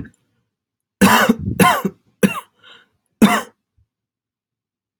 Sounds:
Cough